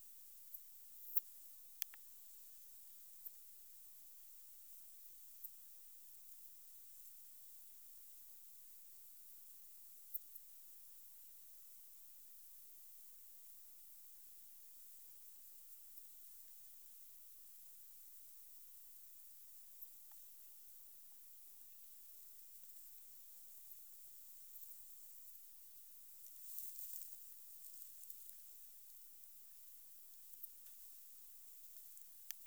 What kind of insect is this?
orthopteran